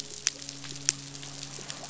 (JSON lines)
{"label": "biophony, midshipman", "recorder": "SoundTrap 500"}
{"label": "biophony", "recorder": "SoundTrap 500"}